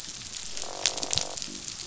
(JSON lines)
{"label": "biophony, croak", "recorder": "SoundTrap 500"}